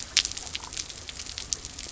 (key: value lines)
label: biophony
recorder: SoundTrap 300